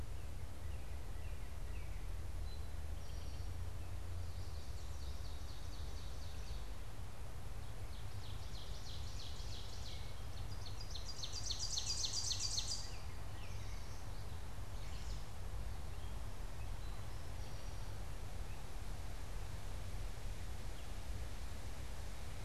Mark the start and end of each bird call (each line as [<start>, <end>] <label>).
[0.54, 2.34] Northern Cardinal (Cardinalis cardinalis)
[2.34, 3.64] Eastern Towhee (Pipilo erythrophthalmus)
[4.24, 13.24] Ovenbird (Seiurus aurocapilla)
[14.54, 15.34] unidentified bird